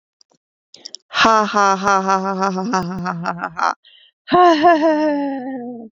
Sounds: Laughter